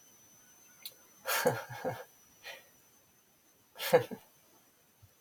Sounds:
Laughter